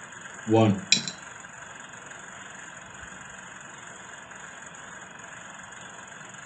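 At 0.47 seconds, someone says "one". After that, at 0.89 seconds, a coin drops.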